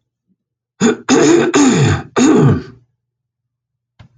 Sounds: Throat clearing